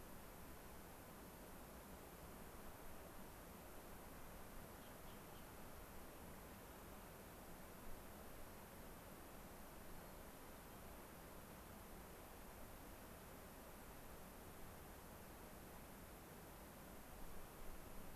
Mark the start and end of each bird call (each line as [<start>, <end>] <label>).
[9.93, 10.83] White-crowned Sparrow (Zonotrichia leucophrys)